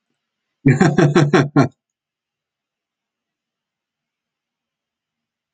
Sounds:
Laughter